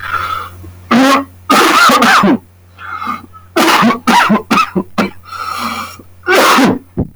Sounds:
Cough